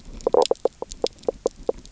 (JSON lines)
{"label": "biophony, knock croak", "recorder": "SoundTrap 300"}